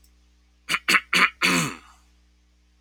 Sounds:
Throat clearing